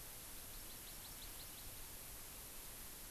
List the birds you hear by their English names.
Hawaii Amakihi